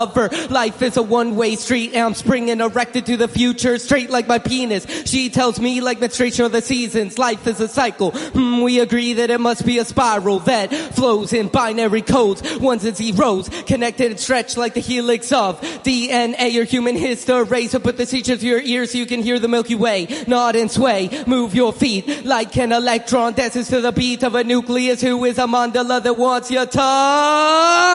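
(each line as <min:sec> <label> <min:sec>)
0:00.0 A man sings a cappella rhythmically and steadily in an echoing room. 0:27.9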